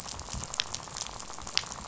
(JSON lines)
{"label": "biophony, rattle", "recorder": "SoundTrap 500"}